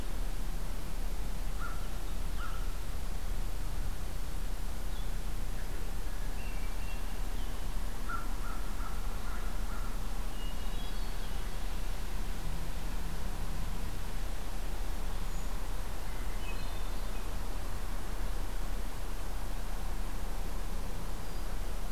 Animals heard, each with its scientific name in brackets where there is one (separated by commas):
Brown Creeper (Certhia americana), Hermit Thrush (Catharus guttatus), American Crow (Corvus brachyrhynchos)